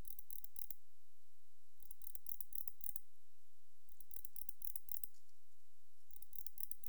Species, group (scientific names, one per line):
Barbitistes yersini
Orthoptera